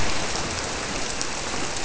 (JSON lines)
{"label": "biophony", "recorder": "SoundTrap 300"}